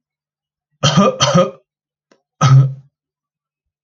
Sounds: Cough